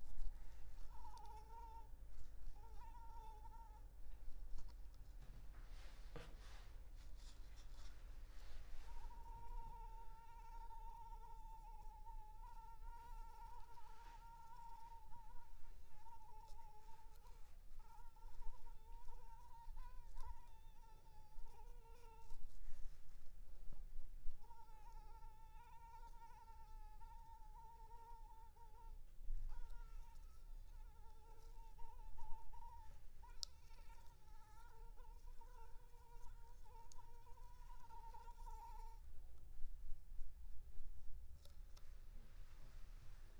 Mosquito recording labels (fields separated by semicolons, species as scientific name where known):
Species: Anopheles arabiensis; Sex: female; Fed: unfed; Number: one; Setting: cup